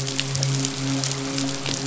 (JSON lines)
{"label": "biophony, midshipman", "recorder": "SoundTrap 500"}